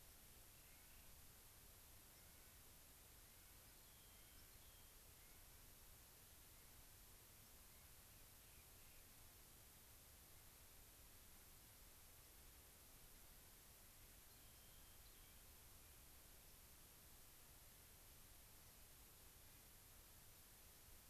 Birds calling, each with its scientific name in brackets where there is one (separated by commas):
White-crowned Sparrow (Zonotrichia leucophrys), Rock Wren (Salpinctes obsoletus), Clark's Nutcracker (Nucifraga columbiana)